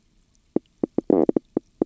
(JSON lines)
{"label": "biophony, knock croak", "recorder": "SoundTrap 300"}